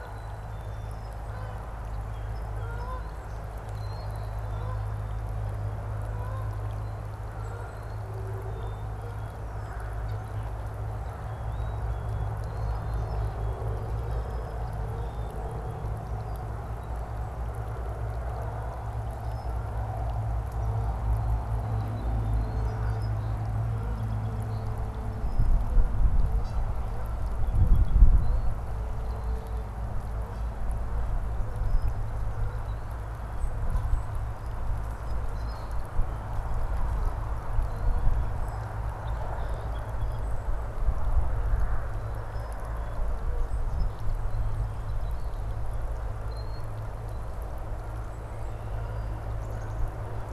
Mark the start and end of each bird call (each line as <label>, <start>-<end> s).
Black-capped Chickadee (Poecile atricapillus), 0.0-1.0 s
Canada Goose (Branta canadensis), 0.0-10.6 s
Song Sparrow (Melospiza melodia), 1.1-3.7 s
Rusty Blackbird (Euphagus carolinus), 3.6-4.2 s
Black-capped Chickadee (Poecile atricapillus), 4.1-5.1 s
Rusty Blackbird (Euphagus carolinus), 7.5-8.0 s
Black-capped Chickadee (Poecile atricapillus), 8.4-9.4 s
Red-winged Blackbird (Agelaius phoeniceus), 9.4-9.9 s
Black-capped Chickadee (Poecile atricapillus), 11.1-13.6 s
Rusty Blackbird (Euphagus carolinus), 12.3-12.9 s
Black-capped Chickadee (Poecile atricapillus), 14.8-15.7 s
Song Sparrow (Melospiza melodia), 21.6-24.8 s
Rusty Blackbird (Euphagus carolinus), 22.2-22.7 s
Canada Goose (Branta canadensis), 26.0-30.7 s
Song Sparrow (Melospiza melodia), 27.2-28.1 s
Rusty Blackbird (Euphagus carolinus), 28.1-28.6 s
Rusty Blackbird (Euphagus carolinus), 32.1-32.9 s
Song Sparrow (Melospiza melodia), 34.3-36.6 s
Rusty Blackbird (Euphagus carolinus), 35.2-35.8 s
Rusty Blackbird (Euphagus carolinus), 37.5-37.9 s
Song Sparrow (Melospiza melodia), 38.8-40.3 s
Common Grackle (Quiscalus quiscula), 39.2-39.7 s
Song Sparrow (Melospiza melodia), 43.3-45.7 s
Rusty Blackbird (Euphagus carolinus), 46.1-46.7 s
Red-winged Blackbird (Agelaius phoeniceus), 48.1-49.2 s
Black-capped Chickadee (Poecile atricapillus), 49.2-50.0 s